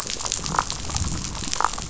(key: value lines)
label: biophony, damselfish
recorder: SoundTrap 500